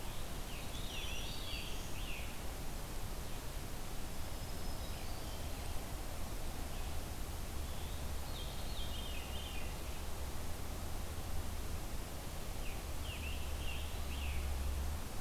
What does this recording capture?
Veery, Black-throated Green Warbler, Scarlet Tanager